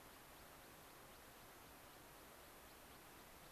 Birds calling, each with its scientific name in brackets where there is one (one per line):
American Pipit (Anthus rubescens)